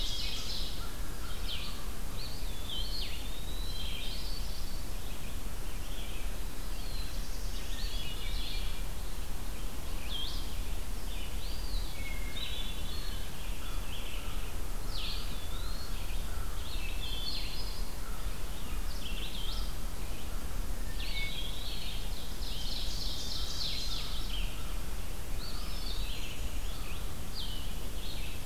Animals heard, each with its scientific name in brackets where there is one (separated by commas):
American Crow (Corvus brachyrhynchos), Black-throated Blue Warbler (Setophaga caerulescens), Red-eyed Vireo (Vireo olivaceus), Great Crested Flycatcher (Myiarchus crinitus), Hermit Thrush (Catharus guttatus), Ovenbird (Seiurus aurocapilla), Eastern Wood-Pewee (Contopus virens)